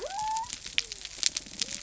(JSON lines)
{"label": "biophony", "recorder": "SoundTrap 300"}